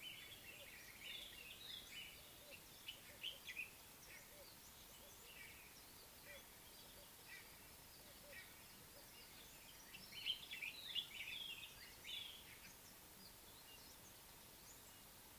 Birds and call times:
White-browed Robin-Chat (Cossypha heuglini): 0:01.4, 0:11.1
Common Bulbul (Pycnonotus barbatus): 0:03.2
White-bellied Go-away-bird (Corythaixoides leucogaster): 0:04.1

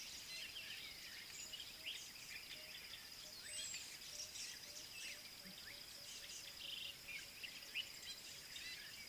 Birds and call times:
Southern Black-Flycatcher (Melaenornis pammelaina): 0:03.6

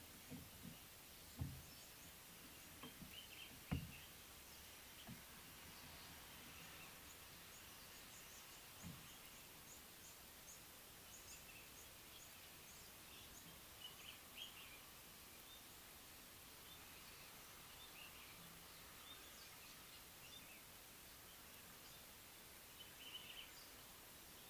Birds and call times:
Common Bulbul (Pycnonotus barbatus): 0:23.2

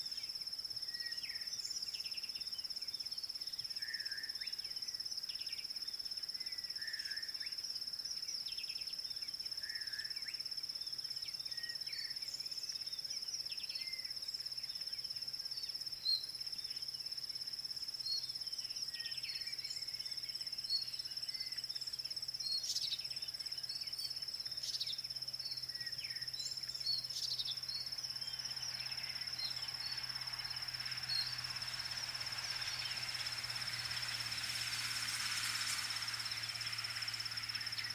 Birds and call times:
African Bare-eyed Thrush (Turdus tephronotus): 0:01.4
Slate-colored Boubou (Laniarius funebris): 0:04.0
Rattling Cisticola (Cisticola chiniana): 0:13.7
Red-backed Scrub-Robin (Cercotrichas leucophrys): 0:27.3

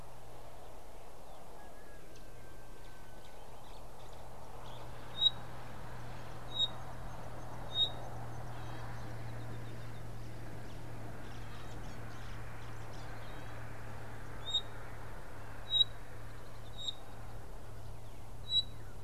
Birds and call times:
Pygmy Batis (Batis perkeo): 0:06.6, 0:15.8
Mouse-colored Penduline-Tit (Anthoscopus musculus): 0:07.4

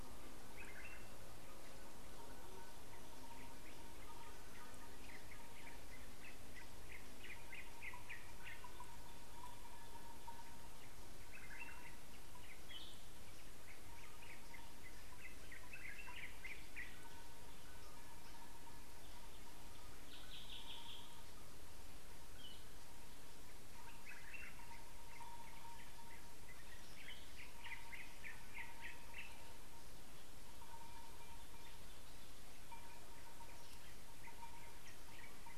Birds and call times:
Yellow-whiskered Greenbul (Eurillas latirostris): 0:07.7, 0:16.0, 0:20.5, 0:28.2

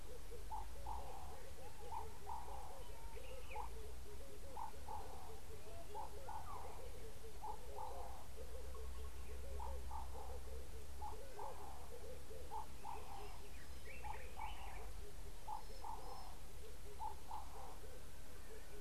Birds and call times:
Ring-necked Dove (Streptopelia capicola): 0:02.5, 0:09.9
Common Bulbul (Pycnonotus barbatus): 0:14.0

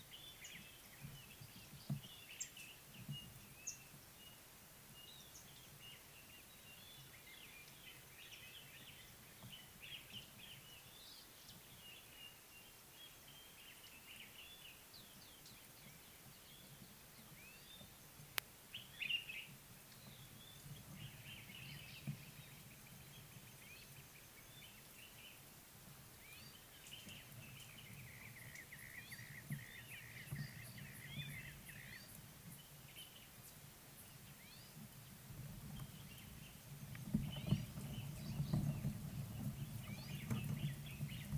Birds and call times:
Common Bulbul (Pycnonotus barbatus): 0:19.1
Brown-crowned Tchagra (Tchagra australis): 0:30.2

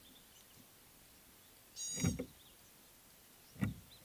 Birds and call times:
Gray-backed Camaroptera (Camaroptera brevicaudata): 0:01.9

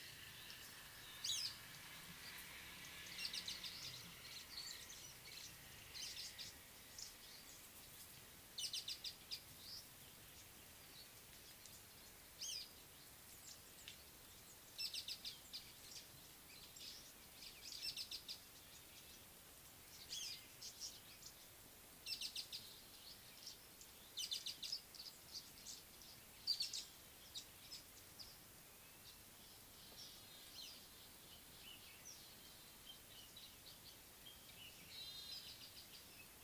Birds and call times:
Speckled Mousebird (Colius striatus): 0:01.4, 0:08.9, 0:12.6, 0:15.2, 0:18.1, 0:24.4

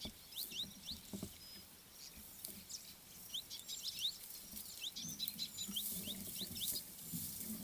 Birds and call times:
Red-billed Firefinch (Lagonosticta senegala): 0:04.0

